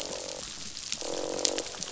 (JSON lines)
{"label": "biophony, croak", "recorder": "SoundTrap 500"}